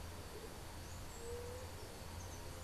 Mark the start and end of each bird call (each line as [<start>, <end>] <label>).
[0.00, 2.63] Andean Motmot (Momotus aequatorialis)
[1.14, 1.74] White-tipped Dove (Leptotila verreauxi)